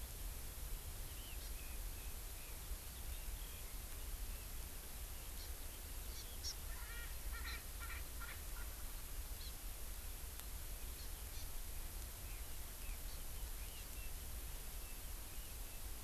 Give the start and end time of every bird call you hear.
[1.09, 4.49] Eurasian Skylark (Alauda arvensis)
[1.39, 1.49] Hawaii Amakihi (Chlorodrepanis virens)
[5.39, 5.49] Hawaii Amakihi (Chlorodrepanis virens)
[6.09, 6.49] Hawaii Amakihi (Chlorodrepanis virens)
[6.69, 8.69] Erckel's Francolin (Pternistis erckelii)
[9.39, 9.49] Hawaii Amakihi (Chlorodrepanis virens)
[10.89, 11.49] Hawaii Amakihi (Chlorodrepanis virens)
[12.19, 15.79] Red-billed Leiothrix (Leiothrix lutea)
[12.99, 13.19] Hawaii Amakihi (Chlorodrepanis virens)

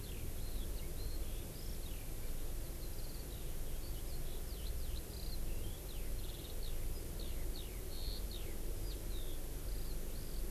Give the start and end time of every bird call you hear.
[0.00, 10.44] Eurasian Skylark (Alauda arvensis)

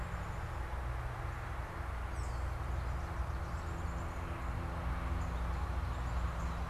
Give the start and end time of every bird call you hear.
[2.00, 2.50] unidentified bird
[3.40, 6.60] Song Sparrow (Melospiza melodia)
[5.00, 5.40] Northern Cardinal (Cardinalis cardinalis)

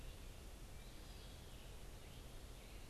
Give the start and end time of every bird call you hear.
[0.00, 2.89] American Robin (Turdus migratorius)
[0.00, 2.89] Eastern Wood-Pewee (Contopus virens)

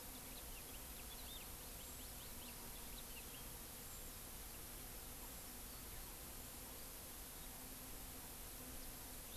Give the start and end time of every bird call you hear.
[0.00, 3.60] House Finch (Haemorhous mexicanus)

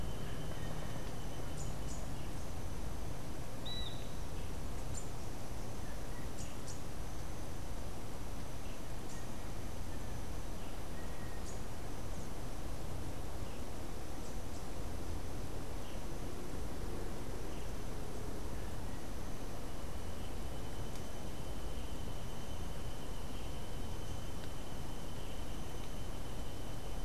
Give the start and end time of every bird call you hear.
[0.00, 11.85] Rufous-capped Warbler (Basileuterus rufifrons)
[3.54, 4.14] Great Kiskadee (Pitangus sulphuratus)

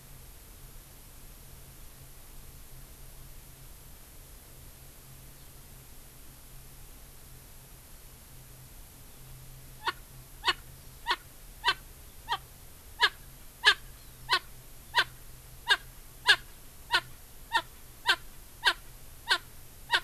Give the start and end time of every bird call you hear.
[9.80, 9.90] Erckel's Francolin (Pternistis erckelii)
[10.40, 10.60] Erckel's Francolin (Pternistis erckelii)
[11.10, 11.20] Erckel's Francolin (Pternistis erckelii)
[11.60, 11.80] Erckel's Francolin (Pternistis erckelii)
[12.30, 12.40] Erckel's Francolin (Pternistis erckelii)
[13.00, 13.10] Erckel's Francolin (Pternistis erckelii)
[13.60, 13.80] Erckel's Francolin (Pternistis erckelii)
[14.30, 14.40] Erckel's Francolin (Pternistis erckelii)
[14.90, 15.10] Erckel's Francolin (Pternistis erckelii)
[15.60, 15.80] Erckel's Francolin (Pternistis erckelii)
[16.20, 16.40] Erckel's Francolin (Pternistis erckelii)
[16.90, 17.10] Erckel's Francolin (Pternistis erckelii)
[17.50, 17.70] Erckel's Francolin (Pternistis erckelii)
[18.00, 18.20] Erckel's Francolin (Pternistis erckelii)
[18.60, 18.80] Erckel's Francolin (Pternistis erckelii)
[19.30, 19.40] Erckel's Francolin (Pternistis erckelii)
[19.90, 20.00] Erckel's Francolin (Pternistis erckelii)

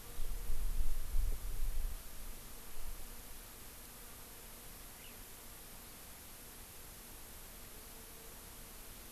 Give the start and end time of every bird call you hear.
[4.98, 5.28] Eurasian Skylark (Alauda arvensis)

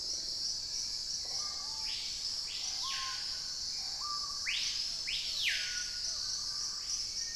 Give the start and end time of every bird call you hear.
[0.00, 4.56] Hauxwell's Thrush (Turdus hauxwelli)
[0.00, 6.76] Wing-barred Piprites (Piprites chloris)
[0.00, 7.36] Screaming Piha (Lipaugus vociferans)
[1.06, 1.66] Red-necked Woodpecker (Campephilus rubricollis)

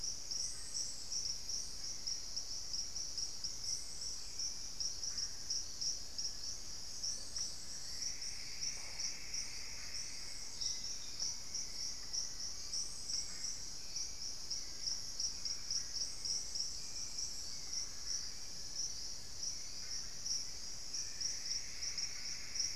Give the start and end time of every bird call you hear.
[0.10, 6.30] Hauxwell's Thrush (Turdus hauxwelli)
[5.80, 8.00] Long-billed Woodcreeper (Nasica longirostris)
[7.60, 10.70] Plumbeous Antbird (Myrmelastes hyperythrus)
[9.00, 12.50] Thrush-like Wren (Campylorhynchus turdinus)
[10.80, 22.75] Hauxwell's Thrush (Turdus hauxwelli)
[14.50, 22.75] Long-billed Woodcreeper (Nasica longirostris)
[20.60, 22.75] Plumbeous Antbird (Myrmelastes hyperythrus)

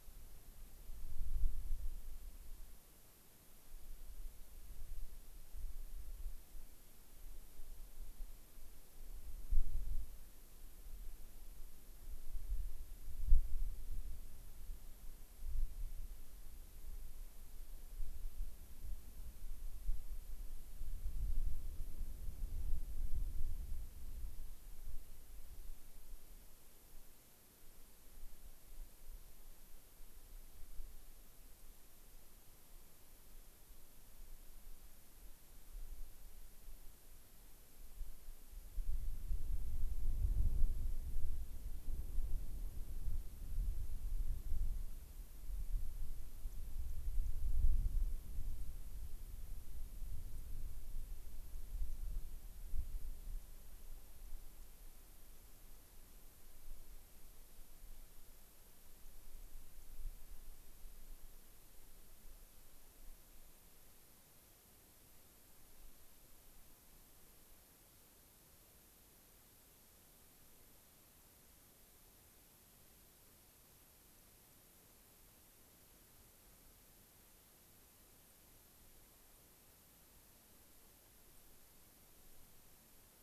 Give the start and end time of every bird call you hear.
[78.18, 78.38] White-crowned Sparrow (Zonotrichia leucophrys)
[79.28, 79.38] White-crowned Sparrow (Zonotrichia leucophrys)
[81.18, 81.48] White-crowned Sparrow (Zonotrichia leucophrys)

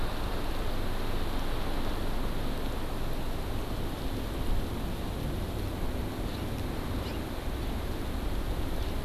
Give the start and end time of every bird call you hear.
[7.00, 7.20] House Finch (Haemorhous mexicanus)

